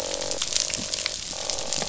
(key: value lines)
label: biophony, croak
recorder: SoundTrap 500